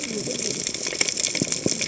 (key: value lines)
label: biophony, cascading saw
recorder: HydroMoth